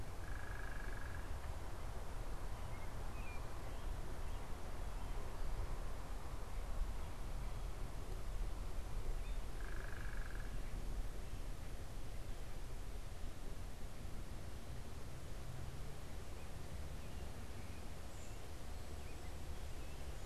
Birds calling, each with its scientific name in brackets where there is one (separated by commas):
American Robin (Turdus migratorius), unidentified bird